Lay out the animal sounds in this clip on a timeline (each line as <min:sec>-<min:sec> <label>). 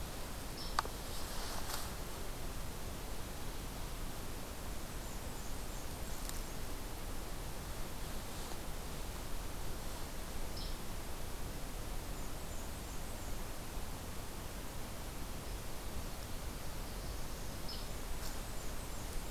0:00.4-0:00.7 Hairy Woodpecker (Dryobates villosus)
0:04.6-0:06.5 Blackburnian Warbler (Setophaga fusca)
0:10.5-0:10.7 Hairy Woodpecker (Dryobates villosus)
0:12.0-0:13.4 Blackburnian Warbler (Setophaga fusca)
0:16.1-0:17.6 Northern Parula (Setophaga americana)
0:17.6-0:17.9 Hairy Woodpecker (Dryobates villosus)
0:17.8-0:19.3 Blackburnian Warbler (Setophaga fusca)